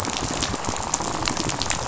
{"label": "biophony, rattle", "recorder": "SoundTrap 500"}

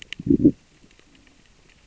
{"label": "biophony, growl", "recorder": "SoundTrap 600 or HydroMoth"}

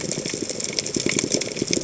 {"label": "biophony, chatter", "recorder": "HydroMoth"}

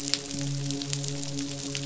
{"label": "biophony, midshipman", "recorder": "SoundTrap 500"}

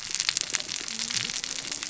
{"label": "biophony, cascading saw", "recorder": "SoundTrap 600 or HydroMoth"}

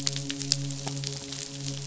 {"label": "biophony, midshipman", "recorder": "SoundTrap 500"}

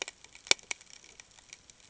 {"label": "ambient", "recorder": "HydroMoth"}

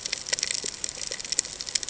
{"label": "ambient", "recorder": "HydroMoth"}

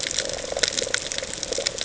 {"label": "ambient", "recorder": "HydroMoth"}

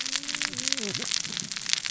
{"label": "biophony, cascading saw", "recorder": "SoundTrap 600 or HydroMoth"}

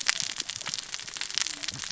{"label": "biophony, cascading saw", "recorder": "SoundTrap 600 or HydroMoth"}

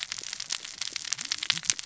{"label": "biophony, cascading saw", "recorder": "SoundTrap 600 or HydroMoth"}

